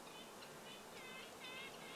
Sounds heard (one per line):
Red-breasted Nuthatch call
Red-breasted Nuthatch song